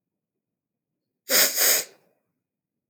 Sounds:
Sniff